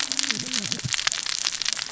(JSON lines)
{"label": "biophony, cascading saw", "recorder": "SoundTrap 600 or HydroMoth"}